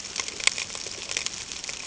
{"label": "ambient", "recorder": "HydroMoth"}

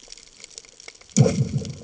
{"label": "anthrophony, bomb", "recorder": "HydroMoth"}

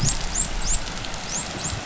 {"label": "biophony, dolphin", "recorder": "SoundTrap 500"}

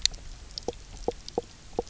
{"label": "biophony, knock croak", "recorder": "SoundTrap 300"}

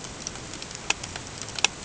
{"label": "ambient", "recorder": "HydroMoth"}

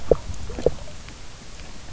{"label": "biophony, knock", "recorder": "SoundTrap 300"}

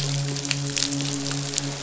{"label": "biophony, midshipman", "recorder": "SoundTrap 500"}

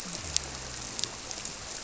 {"label": "biophony", "recorder": "SoundTrap 300"}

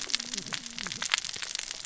{"label": "biophony, cascading saw", "recorder": "SoundTrap 600 or HydroMoth"}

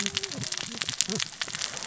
{"label": "biophony, cascading saw", "recorder": "SoundTrap 600 or HydroMoth"}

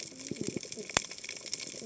{"label": "biophony, cascading saw", "recorder": "HydroMoth"}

